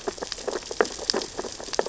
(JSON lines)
{"label": "biophony, sea urchins (Echinidae)", "recorder": "SoundTrap 600 or HydroMoth"}